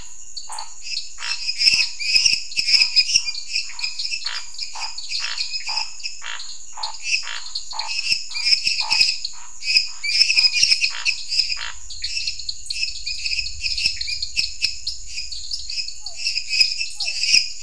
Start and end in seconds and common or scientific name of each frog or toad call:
0.0	11.8	Scinax fuscovarius
0.0	17.6	dwarf tree frog
0.9	17.6	lesser tree frog
15.9	17.6	Physalaemus cuvieri